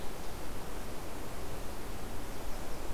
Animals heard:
forest ambience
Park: Katahdin Woods and Waters National Monument